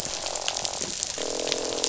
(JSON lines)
{"label": "biophony, croak", "recorder": "SoundTrap 500"}